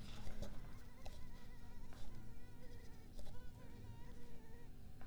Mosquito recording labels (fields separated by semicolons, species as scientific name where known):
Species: Culex pipiens complex; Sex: female; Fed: unfed; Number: one; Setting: cup